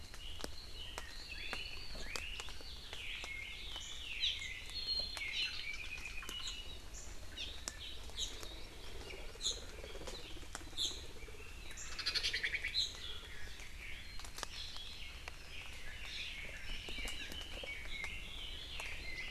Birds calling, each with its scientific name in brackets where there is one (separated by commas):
Hawaii Amakihi (Chlorodrepanis virens), Chinese Hwamei (Garrulax canorus), Omao (Myadestes obscurus)